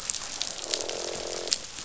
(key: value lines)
label: biophony, croak
recorder: SoundTrap 500